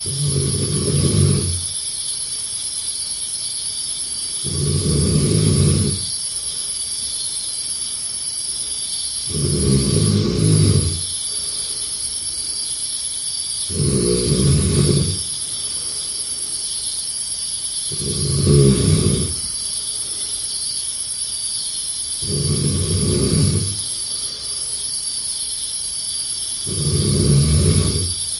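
0.0s A person snores loudly while crickets chirp continuously in the background. 28.3s
0.0s Deep, loud, and rhythmic snoring with intermittent pauses is accompanied by high-pitched, steady, and consistent crickets chirping, creating a natural background hum. 28.3s
0.0s Snoring follows a steady rhythm with fluctuating volume and pitch, occasionally becoming louder or softer, while crickets chirp steadily, sometimes intensifying or fading. 28.3s

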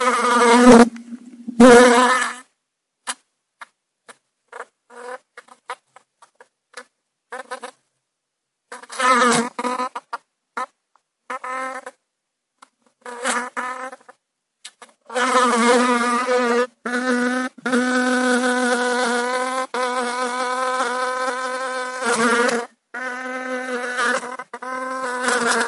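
0.0s An insect is flying nearby. 1.0s
1.5s Insects flying away. 2.4s
3.0s A muffled sound of an insect flying in a room. 5.8s
6.7s A muffled sound of an insect flying in a room. 6.9s
7.3s A muffled insect flying repeatedly in a room. 7.7s
8.7s An insect is flying past. 10.3s
10.5s A muffled sound of an insect flying in a room. 12.0s
13.1s A muffled sound of an insect flying in a room. 14.0s
15.1s An insect is flying continuously in the room. 19.8s
19.8s A muffled sound of an insect flying in a room. 25.7s

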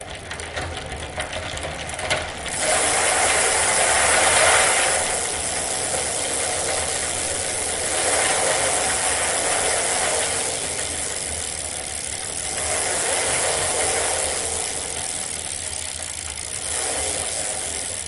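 0.0s A bicycle is idling. 18.1s
2.1s Metallic sound changing into a bicycle idling. 2.3s
2.6s A bicycle chain idles rapidly. 5.1s
7.9s A bicycle chain idles rapidly. 10.9s
12.5s A bicycle chain idles rapidly. 14.6s
16.6s A bicycle chain idles rapidly. 18.1s

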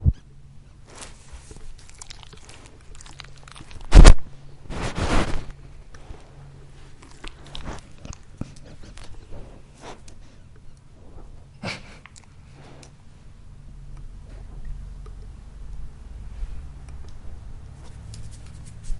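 0.0s An animal with four legs is walking on grass outdoors. 19.0s

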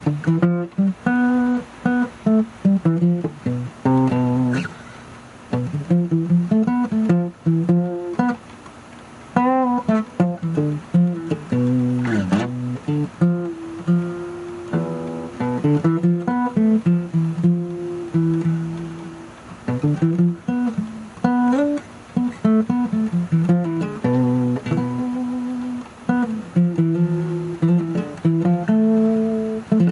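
0.0s Smooth, soulful acoustic guitar strumming. 29.9s

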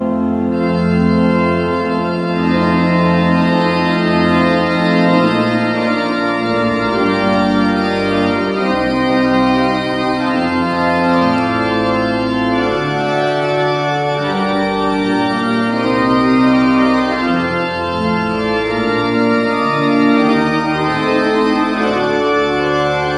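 0.0s An organ is playing music indoors. 23.2s

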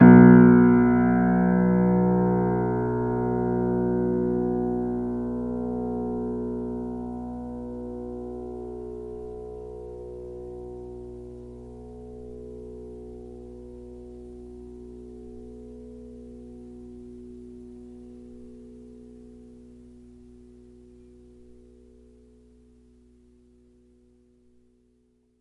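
0.0s A musician forcefully presses short piano keys, producing a long fading echo. 25.4s

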